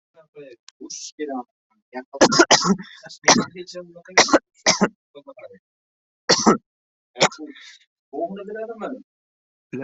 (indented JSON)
{
  "expert_labels": [
    {
      "quality": "ok",
      "cough_type": "dry",
      "dyspnea": false,
      "wheezing": false,
      "stridor": false,
      "choking": false,
      "congestion": false,
      "nothing": true,
      "diagnosis": "healthy cough",
      "severity": "pseudocough/healthy cough"
    }
  ],
  "age": 21,
  "gender": "male",
  "respiratory_condition": false,
  "fever_muscle_pain": false,
  "status": "COVID-19"
}